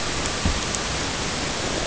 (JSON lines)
{"label": "ambient", "recorder": "HydroMoth"}